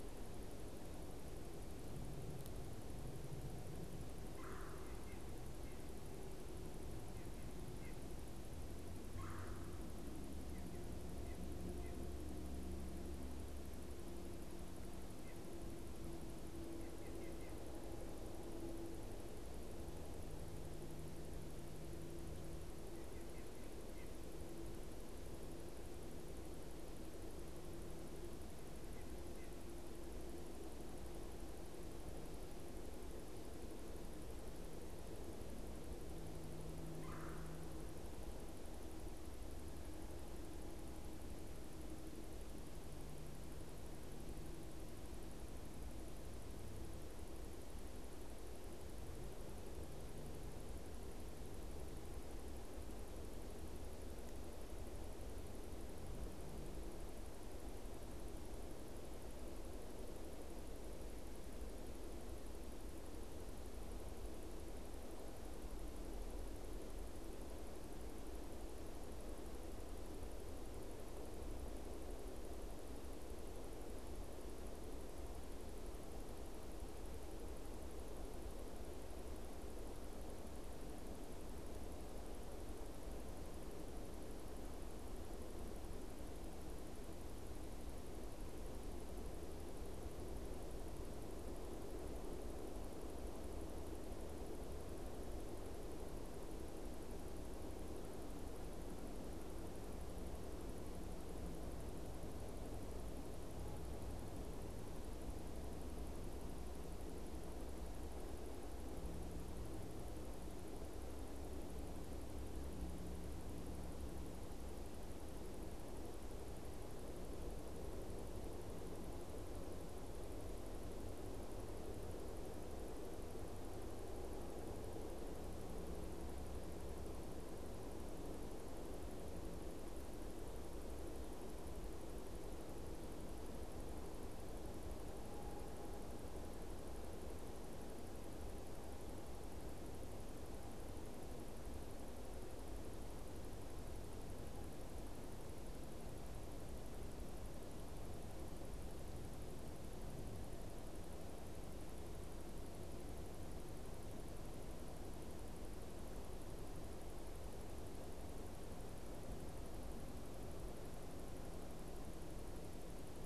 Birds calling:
Red-bellied Woodpecker (Melanerpes carolinus), White-breasted Nuthatch (Sitta carolinensis)

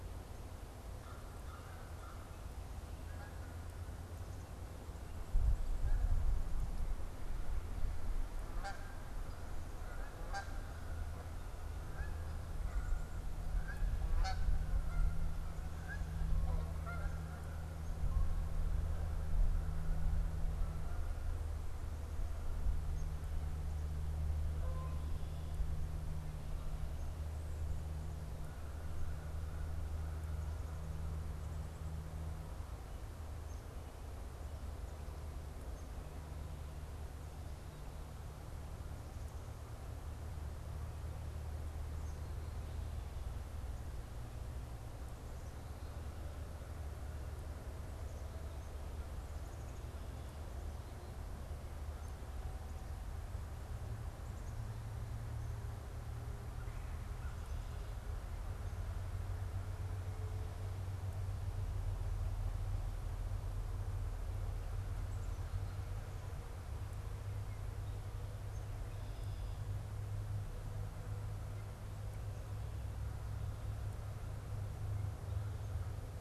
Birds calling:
Canada Goose (Branta canadensis), Black-capped Chickadee (Poecile atricapillus), Red-bellied Woodpecker (Melanerpes carolinus), American Crow (Corvus brachyrhynchos)

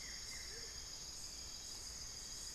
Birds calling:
Buff-throated Woodcreeper (Xiphorhynchus guttatus), Amazonian Motmot (Momotus momota)

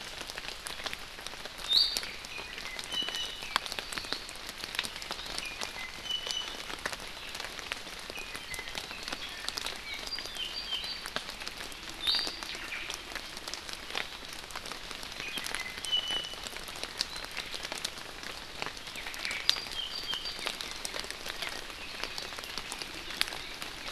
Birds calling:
Iiwi (Drepanis coccinea), Omao (Myadestes obscurus), Apapane (Himatione sanguinea)

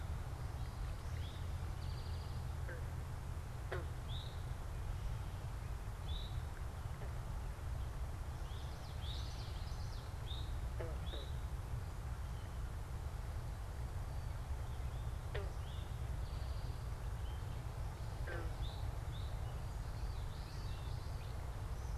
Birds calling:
Common Yellowthroat (Geothlypis trichas), Eastern Towhee (Pipilo erythrophthalmus)

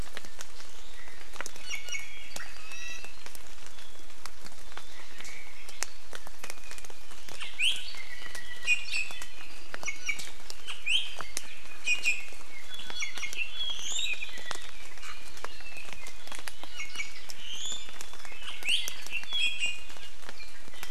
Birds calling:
Iiwi (Drepanis coccinea), Apapane (Himatione sanguinea)

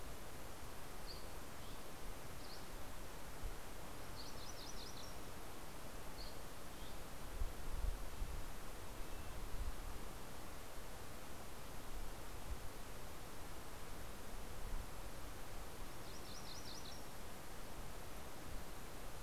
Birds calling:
MacGillivray's Warbler (Geothlypis tolmiei), Dusky Flycatcher (Empidonax oberholseri), Red-breasted Nuthatch (Sitta canadensis)

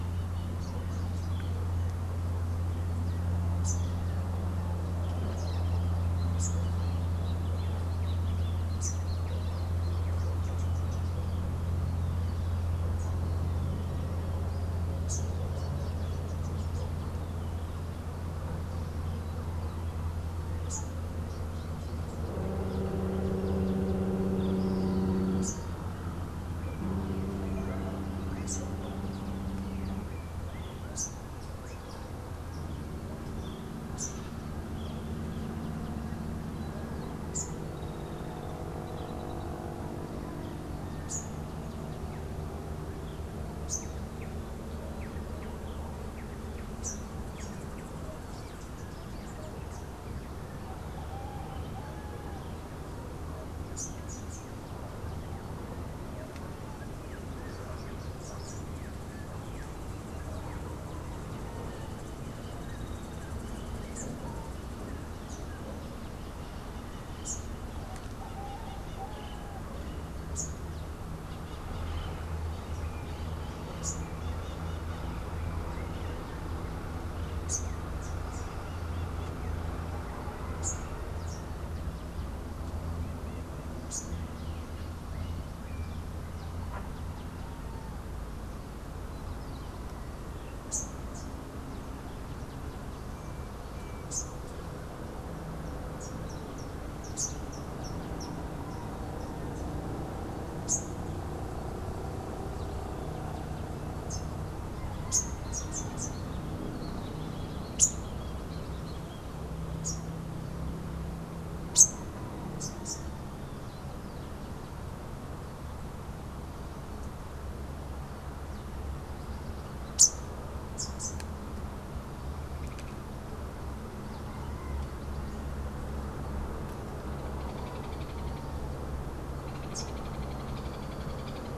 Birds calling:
Great Kiskadee (Pitangus sulphuratus), Rufous-tailed Hummingbird (Amazilia tzacatl), Hoffmann's Woodpecker (Melanerpes hoffmannii), Rufous-naped Wren (Campylorhynchus rufinucha), Rufous-capped Warbler (Basileuterus rufifrons)

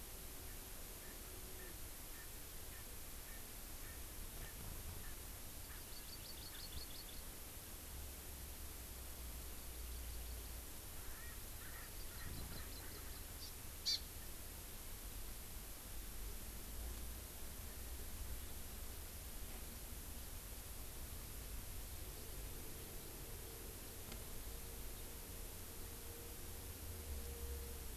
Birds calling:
Hawaii Amakihi (Chlorodrepanis virens), Erckel's Francolin (Pternistis erckelii)

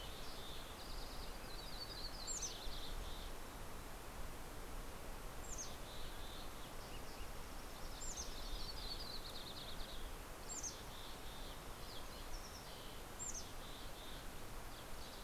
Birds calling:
Yellow-rumped Warbler (Setophaga coronata), Mountain Quail (Oreortyx pictus), Mountain Chickadee (Poecile gambeli), Green-tailed Towhee (Pipilo chlorurus)

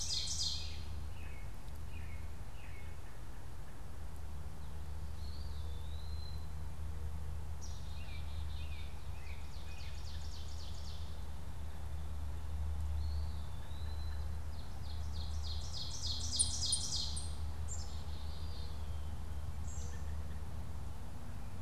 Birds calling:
Black-capped Chickadee (Poecile atricapillus), Eastern Wood-Pewee (Contopus virens), Ovenbird (Seiurus aurocapilla), American Robin (Turdus migratorius)

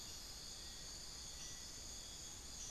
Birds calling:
Cinereous Tinamou (Crypturellus cinereus), Bartlett's Tinamou (Crypturellus bartletti), unidentified bird

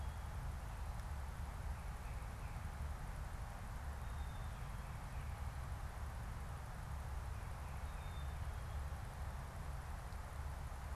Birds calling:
Black-capped Chickadee (Poecile atricapillus), Tufted Titmouse (Baeolophus bicolor)

